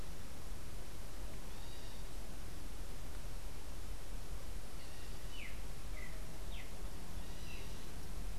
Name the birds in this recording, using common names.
Streaked Saltator